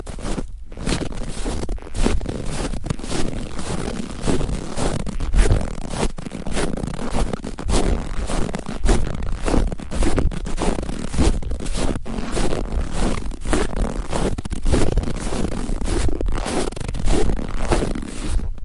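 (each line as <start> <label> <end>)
0.0 Footsteps crunch on snow with sharp, rhythmic compressing and rubbing sounds. 18.6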